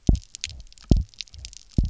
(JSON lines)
{"label": "biophony, double pulse", "recorder": "SoundTrap 300"}